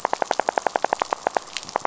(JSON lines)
{"label": "biophony, rattle", "recorder": "SoundTrap 500"}